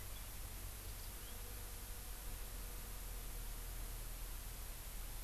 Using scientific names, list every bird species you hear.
Zosterops japonicus